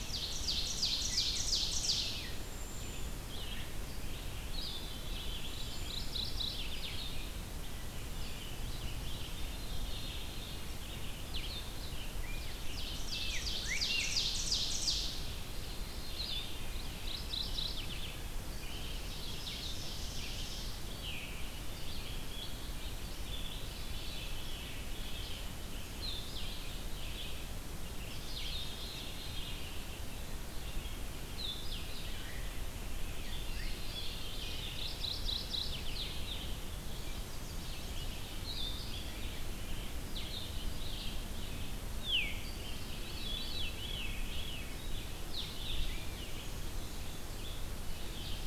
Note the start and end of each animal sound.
[0.00, 2.62] Ovenbird (Seiurus aurocapilla)
[0.00, 48.46] Red-eyed Vireo (Vireo olivaceus)
[0.95, 2.58] Rose-breasted Grosbeak (Pheucticus ludovicianus)
[2.31, 3.23] Veery (Catharus fuscescens)
[3.21, 38.91] Blue-headed Vireo (Vireo solitarius)
[4.67, 6.44] Veery (Catharus fuscescens)
[5.30, 7.40] Mourning Warbler (Geothlypis philadelphia)
[9.04, 10.77] Veery (Catharus fuscescens)
[12.04, 14.29] Rose-breasted Grosbeak (Pheucticus ludovicianus)
[12.52, 15.45] Ovenbird (Seiurus aurocapilla)
[15.52, 17.14] Veery (Catharus fuscescens)
[16.65, 18.29] Mourning Warbler (Geothlypis philadelphia)
[18.93, 20.91] Ovenbird (Seiurus aurocapilla)
[20.85, 21.34] Veery (Catharus fuscescens)
[23.59, 25.45] Veery (Catharus fuscescens)
[28.24, 29.78] Veery (Catharus fuscescens)
[33.32, 34.93] Veery (Catharus fuscescens)
[34.55, 36.23] Mourning Warbler (Geothlypis philadelphia)
[36.81, 38.12] Chestnut-sided Warbler (Setophaga pensylvanica)
[40.08, 48.46] Blue-headed Vireo (Vireo solitarius)
[42.00, 42.49] Veery (Catharus fuscescens)
[42.87, 45.10] Veery (Catharus fuscescens)
[45.77, 46.41] Rose-breasted Grosbeak (Pheucticus ludovicianus)

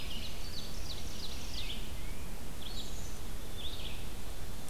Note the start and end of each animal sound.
[0.00, 1.93] Ovenbird (Seiurus aurocapilla)
[0.00, 4.70] Red-eyed Vireo (Vireo olivaceus)
[1.37, 2.31] Tufted Titmouse (Baeolophus bicolor)
[2.56, 3.93] Black-capped Chickadee (Poecile atricapillus)

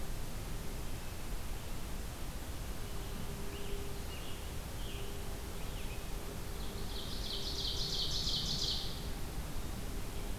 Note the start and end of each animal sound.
[2.82, 6.10] Scarlet Tanager (Piranga olivacea)
[6.57, 9.21] Ovenbird (Seiurus aurocapilla)

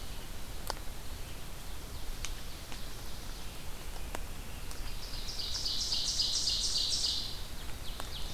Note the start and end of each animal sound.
[1.59, 3.66] Ovenbird (Seiurus aurocapilla)
[4.59, 8.34] Ovenbird (Seiurus aurocapilla)

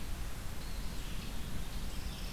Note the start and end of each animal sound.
[0.00, 2.33] Red-eyed Vireo (Vireo olivaceus)

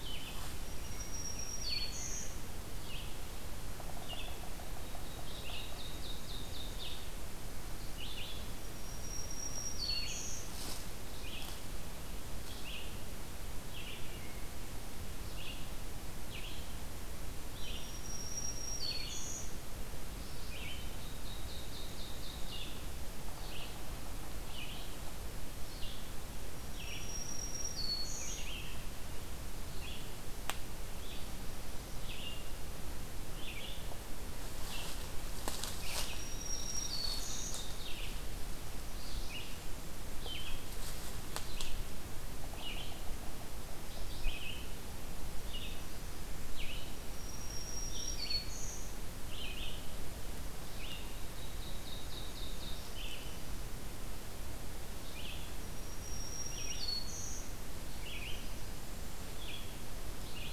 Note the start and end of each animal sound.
[0.00, 53.38] Red-eyed Vireo (Vireo olivaceus)
[0.44, 2.48] Black-throated Green Warbler (Setophaga virens)
[4.67, 7.05] Ovenbird (Seiurus aurocapilla)
[8.67, 10.56] Black-throated Green Warbler (Setophaga virens)
[17.62, 19.58] Black-throated Green Warbler (Setophaga virens)
[20.62, 22.68] Ovenbird (Seiurus aurocapilla)
[26.39, 28.56] Black-throated Green Warbler (Setophaga virens)
[36.07, 37.70] Black-throated Green Warbler (Setophaga virens)
[36.35, 38.07] Ovenbird (Seiurus aurocapilla)
[46.88, 48.93] Black-throated Green Warbler (Setophaga virens)
[51.20, 52.89] Ovenbird (Seiurus aurocapilla)
[54.89, 60.52] Red-eyed Vireo (Vireo olivaceus)
[55.44, 57.66] Black-throated Green Warbler (Setophaga virens)

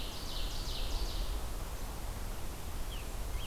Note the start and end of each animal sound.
[0.00, 1.73] Ovenbird (Seiurus aurocapilla)
[2.55, 3.46] Scarlet Tanager (Piranga olivacea)

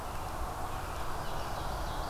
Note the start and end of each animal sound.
[0.70, 2.09] Ovenbird (Seiurus aurocapilla)

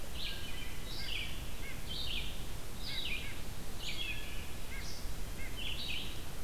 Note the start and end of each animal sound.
[0.00, 6.44] Red-eyed Vireo (Vireo olivaceus)
[0.17, 0.91] Wood Thrush (Hylocichla mustelina)
[0.83, 6.44] White-breasted Nuthatch (Sitta carolinensis)
[3.84, 4.58] Wood Thrush (Hylocichla mustelina)

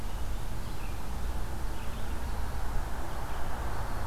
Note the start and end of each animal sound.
[0.00, 4.06] Red-eyed Vireo (Vireo olivaceus)

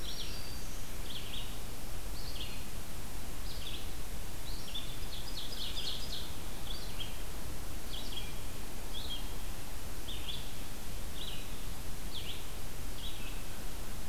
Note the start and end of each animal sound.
[0.00, 1.08] Black-throated Green Warbler (Setophaga virens)
[0.00, 13.45] Red-eyed Vireo (Vireo olivaceus)
[4.71, 6.37] Ovenbird (Seiurus aurocapilla)

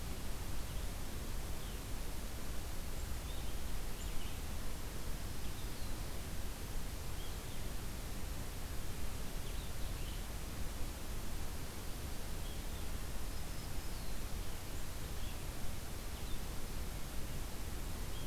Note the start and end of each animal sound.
[0.00, 18.27] Red-eyed Vireo (Vireo olivaceus)
[2.71, 4.14] Black-capped Chickadee (Poecile atricapillus)
[13.13, 14.32] Black-throated Green Warbler (Setophaga virens)

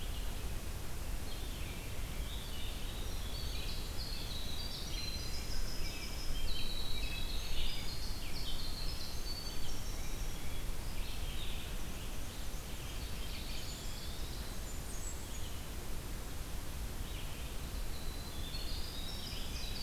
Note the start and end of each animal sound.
[0.00, 19.82] Red-eyed Vireo (Vireo olivaceus)
[2.21, 10.20] Winter Wren (Troglodytes hiemalis)
[11.62, 13.16] Black-and-white Warbler (Mniotilta varia)
[13.36, 14.76] Eastern Wood-Pewee (Contopus virens)
[14.32, 15.61] Blackburnian Warbler (Setophaga fusca)
[17.63, 19.82] Winter Wren (Troglodytes hiemalis)

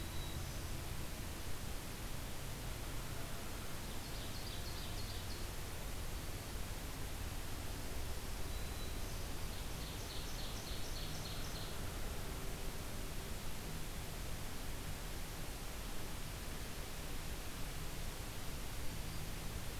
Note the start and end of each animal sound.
[0.00, 0.79] Black-throated Green Warbler (Setophaga virens)
[3.93, 5.43] Ovenbird (Seiurus aurocapilla)
[6.04, 6.58] Black-throated Green Warbler (Setophaga virens)
[7.91, 9.27] Black-throated Green Warbler (Setophaga virens)
[9.37, 11.81] Ovenbird (Seiurus aurocapilla)
[18.81, 19.33] Black-throated Green Warbler (Setophaga virens)

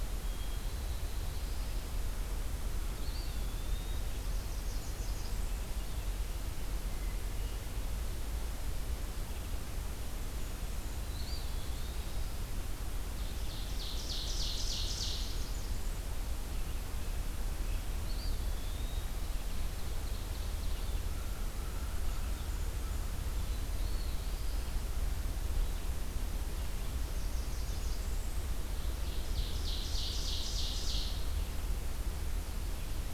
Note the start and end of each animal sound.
[0.05, 2.15] Black-throated Blue Warbler (Setophaga caerulescens)
[0.11, 1.34] Hermit Thrush (Catharus guttatus)
[2.90, 4.15] Eastern Wood-Pewee (Contopus virens)
[4.11, 5.85] Northern Parula (Setophaga americana)
[6.72, 7.62] Hermit Thrush (Catharus guttatus)
[9.79, 11.29] Blackburnian Warbler (Setophaga fusca)
[10.84, 12.45] Black-throated Blue Warbler (Setophaga caerulescens)
[11.19, 12.22] Eastern Wood-Pewee (Contopus virens)
[12.96, 15.75] Ovenbird (Seiurus aurocapilla)
[14.90, 16.17] Blackburnian Warbler (Setophaga fusca)
[18.04, 19.27] Eastern Wood-Pewee (Contopus virens)
[19.61, 21.09] Mourning Warbler (Geothlypis philadelphia)
[21.66, 23.40] Blackburnian Warbler (Setophaga fusca)
[23.09, 24.86] Eastern Wood-Pewee (Contopus virens)
[26.65, 28.73] Northern Parula (Setophaga americana)
[28.89, 31.57] Ovenbird (Seiurus aurocapilla)

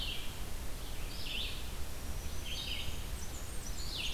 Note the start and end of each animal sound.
[0.00, 4.13] Red-eyed Vireo (Vireo olivaceus)
[1.84, 3.09] Black-throated Green Warbler (Setophaga virens)
[2.83, 4.13] Blackburnian Warbler (Setophaga fusca)
[3.59, 4.13] Eastern Wood-Pewee (Contopus virens)

